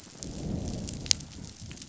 {"label": "biophony, growl", "recorder": "SoundTrap 500"}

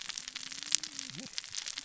{"label": "biophony, cascading saw", "recorder": "SoundTrap 600 or HydroMoth"}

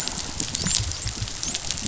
{"label": "biophony, dolphin", "recorder": "SoundTrap 500"}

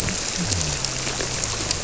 {"label": "biophony", "recorder": "SoundTrap 300"}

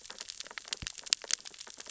{"label": "biophony, sea urchins (Echinidae)", "recorder": "SoundTrap 600 or HydroMoth"}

